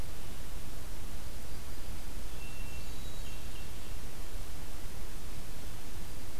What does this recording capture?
Hermit Thrush